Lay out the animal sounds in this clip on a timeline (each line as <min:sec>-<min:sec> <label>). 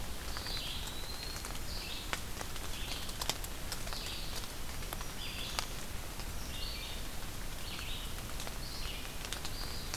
0:00.0-0:10.0 Red-eyed Vireo (Vireo olivaceus)
0:00.2-0:01.7 Eastern Wood-Pewee (Contopus virens)
0:04.6-0:05.7 Black-throated Green Warbler (Setophaga virens)